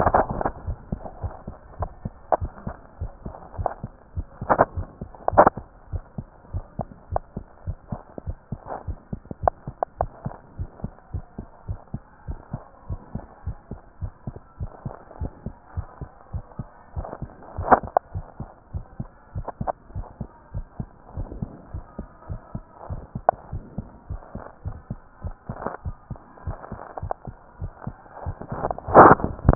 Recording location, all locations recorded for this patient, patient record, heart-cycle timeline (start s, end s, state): tricuspid valve (TV)
aortic valve (AV)+pulmonary valve (PV)+tricuspid valve (TV)+mitral valve (MV)
#Age: Child
#Sex: Male
#Height: 116.0 cm
#Weight: 22.5 kg
#Pregnancy status: False
#Murmur: Absent
#Murmur locations: nan
#Most audible location: nan
#Systolic murmur timing: nan
#Systolic murmur shape: nan
#Systolic murmur grading: nan
#Systolic murmur pitch: nan
#Systolic murmur quality: nan
#Diastolic murmur timing: nan
#Diastolic murmur shape: nan
#Diastolic murmur grading: nan
#Diastolic murmur pitch: nan
#Diastolic murmur quality: nan
#Outcome: Abnormal
#Campaign: 2015 screening campaign
0.00	5.90	unannotated
5.90	6.04	S1
6.04	6.16	systole
6.16	6.26	S2
6.26	6.50	diastole
6.50	6.64	S1
6.64	6.76	systole
6.76	6.86	S2
6.86	7.10	diastole
7.10	7.24	S1
7.24	7.34	systole
7.34	7.44	S2
7.44	7.64	diastole
7.64	7.78	S1
7.78	7.90	systole
7.90	8.00	S2
8.00	8.24	diastole
8.24	8.38	S1
8.38	8.50	systole
8.50	8.60	S2
8.60	8.84	diastole
8.84	8.98	S1
8.98	9.10	systole
9.10	9.20	S2
9.20	9.40	diastole
9.40	9.54	S1
9.54	9.66	systole
9.66	9.76	S2
9.76	10.00	diastole
10.00	10.12	S1
10.12	10.24	systole
10.24	10.34	S2
10.34	10.56	diastole
10.56	10.70	S1
10.70	10.82	systole
10.82	10.92	S2
10.92	11.14	diastole
11.14	11.26	S1
11.26	11.36	systole
11.36	11.46	S2
11.46	11.66	diastole
11.66	11.80	S1
11.80	11.92	systole
11.92	12.02	S2
12.02	12.28	diastole
12.28	12.40	S1
12.40	12.52	systole
12.52	12.62	S2
12.62	12.88	diastole
12.88	13.02	S1
13.02	13.12	systole
13.12	13.22	S2
13.22	13.46	diastole
13.46	13.58	S1
13.58	13.70	systole
13.70	13.80	S2
13.80	14.02	diastole
14.02	14.12	S1
14.12	14.26	systole
14.26	14.36	S2
14.36	14.60	diastole
14.60	14.72	S1
14.72	14.84	systole
14.84	14.94	S2
14.94	15.18	diastole
15.18	15.32	S1
15.32	15.44	systole
15.44	15.54	S2
15.54	15.74	diastole
15.74	15.88	S1
15.88	16.00	systole
16.00	16.10	S2
16.10	16.32	diastole
16.32	16.46	S1
16.46	16.57	systole
16.57	16.68	S2
16.68	16.94	diastole
16.94	17.08	S1
17.08	17.20	systole
17.20	17.30	S2
17.30	17.54	diastole
17.54	17.68	S1
17.68	17.81	systole
17.81	17.88	S2
17.88	18.12	diastole
18.12	18.26	S1
18.26	18.38	systole
18.38	18.48	S2
18.48	18.72	diastole
18.72	18.86	S1
18.86	18.98	systole
18.98	19.08	S2
19.08	19.32	diastole
19.32	19.46	S1
19.46	19.58	systole
19.58	19.70	S2
19.70	19.92	diastole
19.92	20.06	S1
20.06	20.18	systole
20.18	20.30	S2
20.30	20.54	diastole
20.54	20.68	S1
20.68	20.78	systole
20.78	20.90	S2
20.90	21.14	diastole
21.14	21.28	S1
21.28	21.36	systole
21.36	21.50	S2
21.50	21.72	diastole
21.72	21.84	S1
21.84	21.96	systole
21.96	22.06	S2
22.06	22.28	diastole
22.28	22.42	S1
22.42	22.54	systole
22.54	22.64	S2
22.64	22.88	diastole
22.88	23.04	S1
23.04	23.14	systole
23.14	23.26	S2
23.26	23.50	diastole
23.50	23.64	S1
23.64	23.74	systole
23.74	23.86	S2
23.86	24.08	diastole
24.08	24.22	S1
24.22	24.34	systole
24.34	24.42	S2
24.42	24.64	diastole
24.64	24.78	S1
24.78	24.88	systole
24.88	24.98	S2
24.98	29.55	unannotated